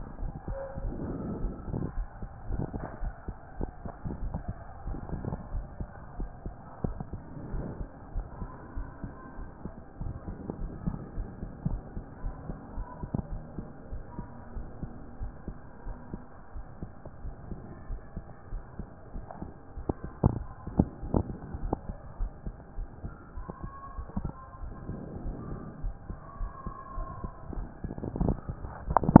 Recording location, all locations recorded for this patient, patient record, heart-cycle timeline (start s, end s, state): aortic valve (AV)
aortic valve (AV)+pulmonary valve (PV)+tricuspid valve (TV)+mitral valve (MV)
#Age: Child
#Sex: Male
#Height: 151.0 cm
#Weight: 48.8 kg
#Pregnancy status: False
#Murmur: Absent
#Murmur locations: nan
#Most audible location: nan
#Systolic murmur timing: nan
#Systolic murmur shape: nan
#Systolic murmur grading: nan
#Systolic murmur pitch: nan
#Systolic murmur quality: nan
#Diastolic murmur timing: nan
#Diastolic murmur shape: nan
#Diastolic murmur grading: nan
#Diastolic murmur pitch: nan
#Diastolic murmur quality: nan
#Outcome: Abnormal
#Campaign: 2014 screening campaign
0.00	13.30	unannotated
13.30	13.42	S1
13.42	13.56	systole
13.56	13.66	S2
13.66	13.90	diastole
13.90	14.02	S1
14.02	14.18	systole
14.18	14.28	S2
14.28	14.54	diastole
14.54	14.66	S1
14.66	14.82	systole
14.82	14.90	S2
14.90	15.20	diastole
15.20	15.32	S1
15.32	15.48	systole
15.48	15.56	S2
15.56	15.86	diastole
15.86	15.96	S1
15.96	16.12	systole
16.12	16.22	S2
16.22	16.54	diastole
16.54	16.64	S1
16.64	16.82	systole
16.82	16.90	S2
16.90	17.24	diastole
17.24	17.34	S1
17.34	17.50	systole
17.50	17.58	S2
17.58	17.88	diastole
17.88	18.00	S1
18.00	18.16	systole
18.16	18.24	S2
18.24	18.52	diastole
18.52	18.62	S1
18.62	18.78	systole
18.78	18.88	S2
18.88	19.14	diastole
19.14	19.24	S1
19.24	19.42	systole
19.42	19.52	S2
19.52	19.78	diastole
19.78	29.20	unannotated